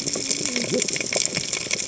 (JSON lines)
{"label": "biophony, cascading saw", "recorder": "HydroMoth"}